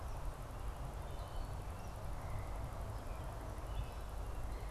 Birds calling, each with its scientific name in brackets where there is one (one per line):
Wood Thrush (Hylocichla mustelina)